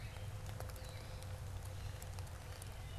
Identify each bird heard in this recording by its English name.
Gray Catbird